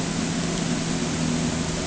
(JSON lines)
{"label": "anthrophony, boat engine", "recorder": "HydroMoth"}